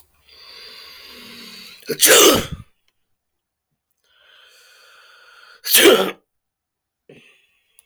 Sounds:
Sneeze